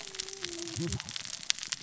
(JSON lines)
{"label": "biophony, cascading saw", "recorder": "SoundTrap 600 or HydroMoth"}